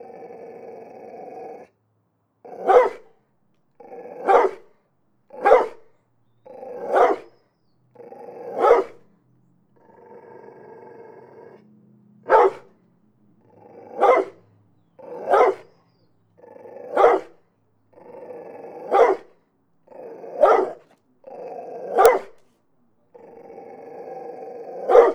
what kind of animal is making the noise?
dog